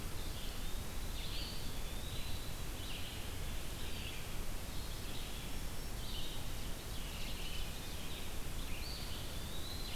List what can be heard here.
Red-eyed Vireo, Eastern Wood-Pewee, Black-throated Green Warbler, Ovenbird, Black-throated Blue Warbler